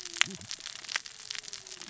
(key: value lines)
label: biophony, cascading saw
recorder: SoundTrap 600 or HydroMoth